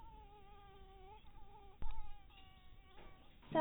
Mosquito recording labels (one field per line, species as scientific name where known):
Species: mosquito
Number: one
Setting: cup